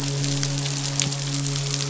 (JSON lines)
{"label": "biophony, midshipman", "recorder": "SoundTrap 500"}